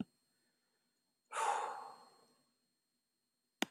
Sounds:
Sigh